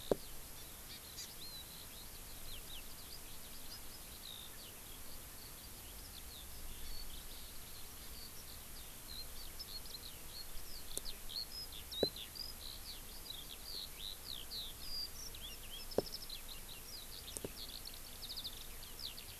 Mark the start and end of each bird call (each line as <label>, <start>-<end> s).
Eurasian Skylark (Alauda arvensis), 0.0-19.4 s
Hawaii Amakihi (Chlorodrepanis virens), 0.8-1.2 s
Warbling White-eye (Zosterops japonicus), 11.8-12.1 s